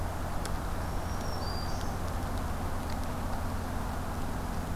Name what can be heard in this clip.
Black-throated Green Warbler